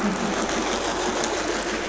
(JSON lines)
{"label": "anthrophony, boat engine", "recorder": "SoundTrap 500"}